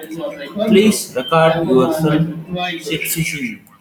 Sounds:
Sniff